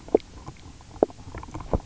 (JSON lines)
{"label": "biophony, knock croak", "recorder": "SoundTrap 300"}